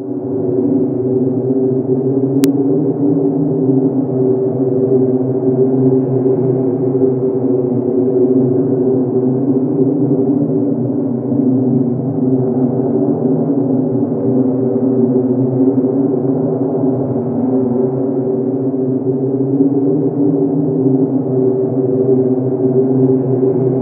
Is the sound a white noise?
yes